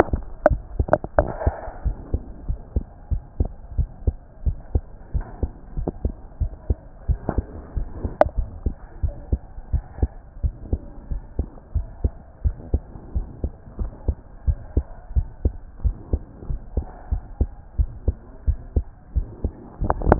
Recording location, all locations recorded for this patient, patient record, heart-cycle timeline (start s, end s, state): pulmonary valve (PV)
aortic valve (AV)+pulmonary valve (PV)+tricuspid valve (TV)+mitral valve (MV)
#Age: Child
#Sex: Female
#Height: 109.0 cm
#Weight: 19.0 kg
#Pregnancy status: False
#Murmur: Present
#Murmur locations: mitral valve (MV)+pulmonary valve (PV)+tricuspid valve (TV)
#Most audible location: tricuspid valve (TV)
#Systolic murmur timing: Holosystolic
#Systolic murmur shape: Plateau
#Systolic murmur grading: I/VI
#Systolic murmur pitch: Low
#Systolic murmur quality: Harsh
#Diastolic murmur timing: nan
#Diastolic murmur shape: nan
#Diastolic murmur grading: nan
#Diastolic murmur pitch: nan
#Diastolic murmur quality: nan
#Outcome: Abnormal
#Campaign: 2014 screening campaign
0.00	1.66	unannotated
1.66	1.84	diastole
1.84	1.96	S1
1.96	2.12	systole
2.12	2.22	S2
2.22	2.48	diastole
2.48	2.58	S1
2.58	2.74	systole
2.74	2.84	S2
2.84	3.10	diastole
3.10	3.22	S1
3.22	3.38	systole
3.38	3.50	S2
3.50	3.76	diastole
3.76	3.88	S1
3.88	4.06	systole
4.06	4.16	S2
4.16	4.44	diastole
4.44	4.58	S1
4.58	4.74	systole
4.74	4.84	S2
4.84	5.14	diastole
5.14	5.26	S1
5.26	5.42	systole
5.42	5.50	S2
5.50	5.80	diastole
5.80	5.90	S1
5.90	6.04	systole
6.04	6.14	S2
6.14	6.40	diastole
6.40	6.52	S1
6.52	6.68	systole
6.68	6.78	S2
6.78	7.08	diastole
7.08	7.20	S1
7.20	7.36	systole
7.36	7.46	S2
7.46	7.76	diastole
7.76	7.88	S1
7.88	8.02	systole
8.02	8.12	S2
8.12	8.36	diastole
8.36	8.48	S1
8.48	8.64	systole
8.64	8.74	S2
8.74	9.02	diastole
9.02	9.14	S1
9.14	9.30	systole
9.30	9.40	S2
9.40	9.72	diastole
9.72	9.84	S1
9.84	10.00	systole
10.00	10.10	S2
10.10	10.42	diastole
10.42	10.54	S1
10.54	10.70	systole
10.70	10.80	S2
10.80	11.10	diastole
11.10	11.22	S1
11.22	11.38	systole
11.38	11.46	S2
11.46	11.74	diastole
11.74	11.86	S1
11.86	12.02	systole
12.02	12.12	S2
12.12	12.44	diastole
12.44	12.56	S1
12.56	12.72	systole
12.72	12.82	S2
12.82	13.14	diastole
13.14	13.26	S1
13.26	13.42	systole
13.42	13.52	S2
13.52	13.78	diastole
13.78	13.90	S1
13.90	14.06	systole
14.06	14.16	S2
14.16	14.46	diastole
14.46	14.58	S1
14.58	14.76	systole
14.76	14.84	S2
14.84	15.16	diastole
15.16	15.28	S1
15.28	15.44	systole
15.44	15.54	S2
15.54	15.84	diastole
15.84	15.96	S1
15.96	16.12	systole
16.12	16.22	S2
16.22	16.48	diastole
16.48	16.60	S1
16.60	16.76	systole
16.76	16.86	S2
16.86	17.10	diastole
17.10	17.22	S1
17.22	17.40	systole
17.40	17.50	S2
17.50	17.78	diastole
17.78	17.90	S1
17.90	18.06	systole
18.06	18.16	S2
18.16	18.46	diastole
18.46	18.58	S1
18.58	18.74	systole
18.74	18.84	S2
18.84	19.16	diastole
19.16	19.26	S1
19.26	19.44	systole
19.44	19.52	S2
19.52	19.84	diastole
19.84	20.19	unannotated